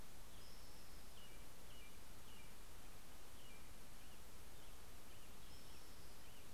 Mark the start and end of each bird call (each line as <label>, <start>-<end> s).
Spotted Towhee (Pipilo maculatus), 0.0-1.3 s
American Robin (Turdus migratorius), 0.4-6.5 s
Spotted Towhee (Pipilo maculatus), 4.7-6.5 s